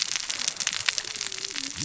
{"label": "biophony, cascading saw", "recorder": "SoundTrap 600 or HydroMoth"}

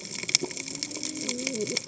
{"label": "biophony, cascading saw", "recorder": "HydroMoth"}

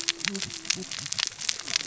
{"label": "biophony, cascading saw", "recorder": "SoundTrap 600 or HydroMoth"}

